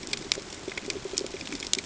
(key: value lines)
label: ambient
recorder: HydroMoth